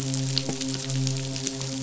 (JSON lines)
{"label": "biophony, midshipman", "recorder": "SoundTrap 500"}